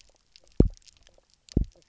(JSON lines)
{"label": "biophony, double pulse", "recorder": "SoundTrap 300"}